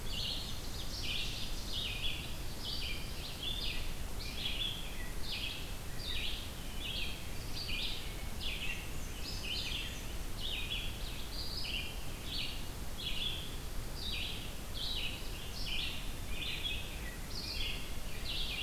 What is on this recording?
Black-and-white Warbler, Ovenbird, Red-eyed Vireo